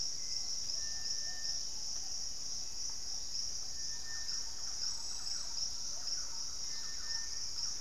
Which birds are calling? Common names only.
unidentified bird, Plumbeous Pigeon, Black-faced Antthrush, Thrush-like Wren, Hauxwell's Thrush